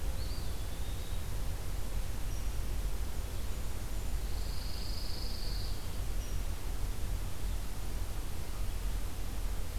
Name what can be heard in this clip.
Eastern Wood-Pewee, Pine Warbler